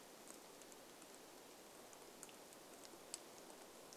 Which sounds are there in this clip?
rain